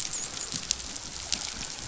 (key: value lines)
label: biophony, dolphin
recorder: SoundTrap 500